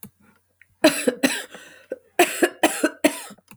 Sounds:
Cough